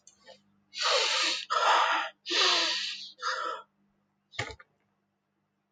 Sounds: Sigh